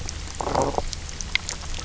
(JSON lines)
{"label": "biophony", "recorder": "SoundTrap 300"}